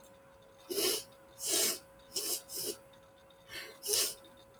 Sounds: Sniff